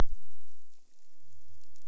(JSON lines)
{"label": "biophony", "recorder": "SoundTrap 300"}